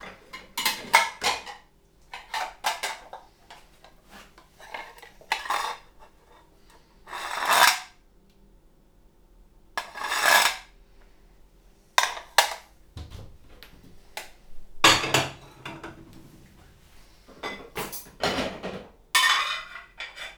Are people talking?
no